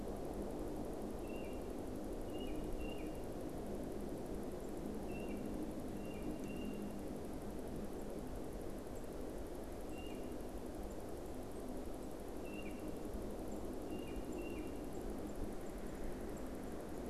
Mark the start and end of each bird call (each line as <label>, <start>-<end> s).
Tufted Titmouse (Baeolophus bicolor), 1.1-3.2 s
unidentified bird, 4.5-17.1 s
Tufted Titmouse (Baeolophus bicolor), 5.1-6.9 s
Tufted Titmouse (Baeolophus bicolor), 9.8-10.4 s
Tufted Titmouse (Baeolophus bicolor), 12.3-14.8 s